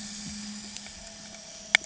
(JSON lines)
{"label": "anthrophony, boat engine", "recorder": "HydroMoth"}